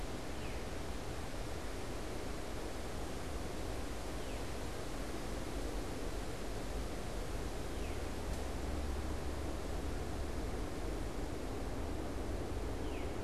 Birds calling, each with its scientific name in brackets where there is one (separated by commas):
Veery (Catharus fuscescens)